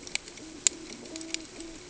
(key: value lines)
label: ambient
recorder: HydroMoth